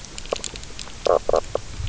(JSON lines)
{"label": "biophony, knock croak", "recorder": "SoundTrap 300"}